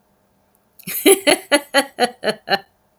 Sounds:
Laughter